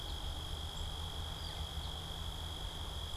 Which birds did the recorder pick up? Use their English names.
Northern Flicker